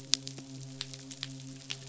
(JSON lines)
{"label": "biophony, midshipman", "recorder": "SoundTrap 500"}